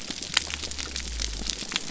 {"label": "biophony", "recorder": "SoundTrap 300"}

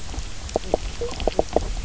{"label": "biophony, knock croak", "recorder": "SoundTrap 300"}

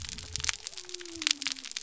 {"label": "biophony", "recorder": "SoundTrap 300"}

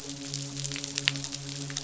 {"label": "biophony, midshipman", "recorder": "SoundTrap 500"}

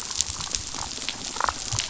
{"label": "biophony", "recorder": "SoundTrap 500"}
{"label": "biophony, damselfish", "recorder": "SoundTrap 500"}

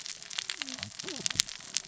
{"label": "biophony, cascading saw", "recorder": "SoundTrap 600 or HydroMoth"}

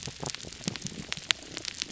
{"label": "biophony, damselfish", "recorder": "SoundTrap 300"}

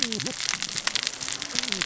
{"label": "biophony, cascading saw", "recorder": "SoundTrap 600 or HydroMoth"}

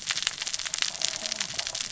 {"label": "biophony, cascading saw", "recorder": "SoundTrap 600 or HydroMoth"}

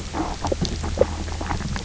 {"label": "biophony, knock croak", "recorder": "SoundTrap 300"}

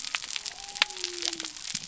{"label": "biophony", "recorder": "SoundTrap 300"}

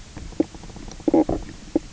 {"label": "biophony, knock croak", "recorder": "SoundTrap 300"}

